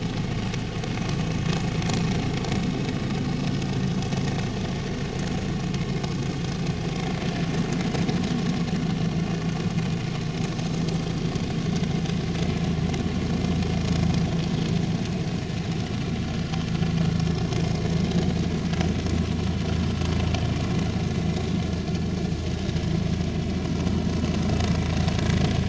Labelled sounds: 5.3	5.6	vessel noise, 6.7 to 6.9 kHz
17.2	17.4	vessel noise, 5.1 to 5.4 kHz

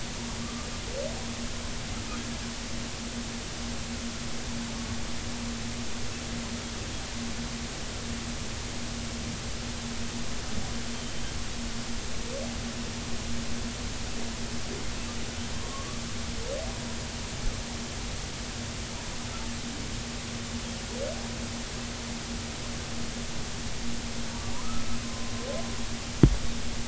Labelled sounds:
0.4	0.7	humpback whale, 1.1 to 1.3 kHz
15.5	16.0	humpback whale, 1.0 to 1.3 kHz
24.6	25.3	humpback whale, 0.99 to 1.4 kHz

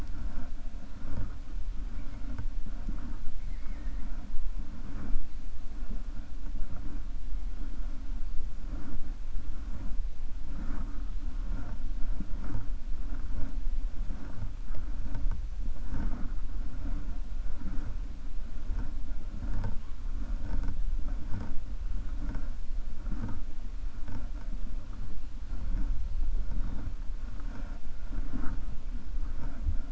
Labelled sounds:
3.4	4.1	killer whale, 1.3 to 2.3 kHz

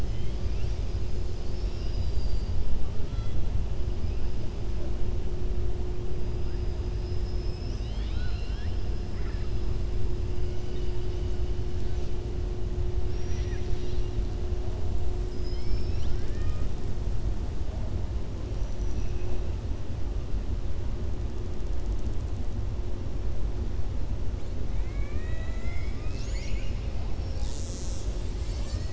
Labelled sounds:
1.4	2.6	killer whale, southern resident, 2.7 to 5.6 kHz
6.9	8.8	killer whale, southern resident, 1.4 to 6.1 kHz
13.0	14.1	killer whale, southern resident, 1.7 to 5.9 kHz
18.5	19.4	killer whale, southern resident, 2.5 to 6.8 kHz
24.7	26.9	killer whale, southern resident, 1.1 to 6.9 kHz

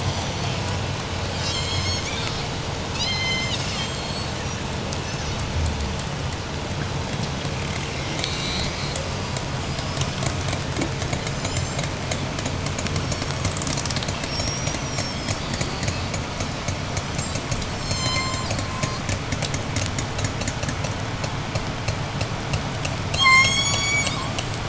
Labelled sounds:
1.3	2.6	killer whale, 1.7 to 8.0 kHz
2.8	4.2	killer whale, J pod, 1.6 to 8.0 kHz
4.9	5.8	killer whale, 3.1 to 7.1 kHz
7.2	9.3	killer whale, 1.7 to 8.0 kHz
9.6	16.2	killer whale, 3.0 to 8.0 kHz
17.6	19.1	killer whale, J pod, 0.88 to 8.0 kHz
22.9	24.5	killer whale, J pod, 0.74 to 8.0 kHz

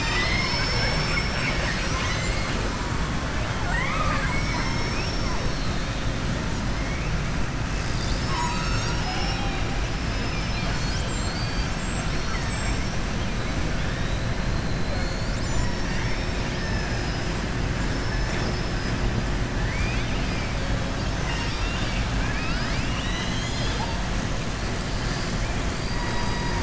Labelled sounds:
12.2	12.8	killer whale, southern resident, 1.3 to 3.3 kHz
16.5	17.3	killer whale, southern resident, 4.8 to 6.3 kHz
17.8	18.9	killer whale, southern resident, 4.3 to 7.5 kHz
19.6	20.5	killer whale, southern resident, 1.8 to 4.9 kHz
21.3	22.1	killer whale, southern resident, 0.99 to 7.9 kHz
25.7	26.6	killer whale, southern resident, 3.8 to 5.8 kHz

